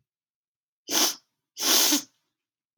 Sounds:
Sniff